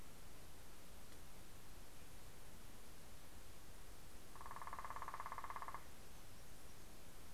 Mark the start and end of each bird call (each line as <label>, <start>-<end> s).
Hermit Warbler (Setophaga occidentalis), 5.6-7.3 s